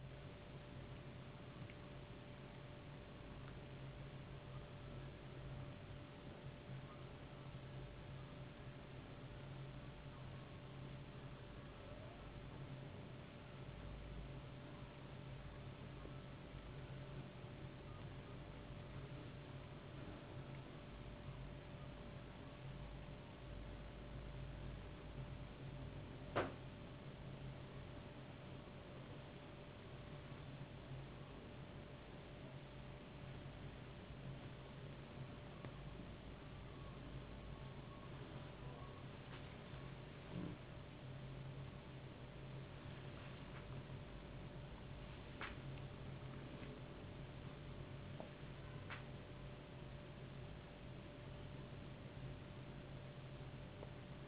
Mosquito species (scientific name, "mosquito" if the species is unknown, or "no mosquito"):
no mosquito